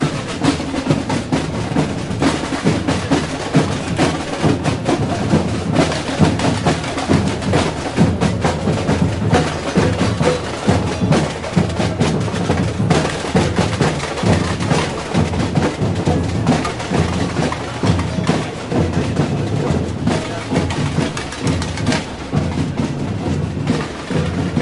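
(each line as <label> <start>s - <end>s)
Loud, rhythmic, repetitive drumming on the street. 0.0s - 24.6s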